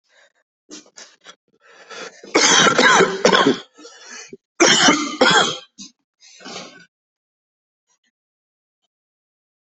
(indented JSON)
{
  "expert_labels": [
    {
      "quality": "ok",
      "cough_type": "wet",
      "dyspnea": false,
      "wheezing": false,
      "stridor": false,
      "choking": false,
      "congestion": false,
      "nothing": true,
      "diagnosis": "COVID-19",
      "severity": "mild"
    }
  ],
  "age": 44,
  "gender": "male",
  "respiratory_condition": false,
  "fever_muscle_pain": false,
  "status": "healthy"
}